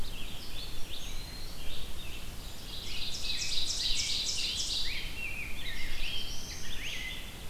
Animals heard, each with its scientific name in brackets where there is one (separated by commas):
Eastern Wood-Pewee (Contopus virens), Black-throated Blue Warbler (Setophaga caerulescens), Rose-breasted Grosbeak (Pheucticus ludovicianus), Red-eyed Vireo (Vireo olivaceus), Ovenbird (Seiurus aurocapilla)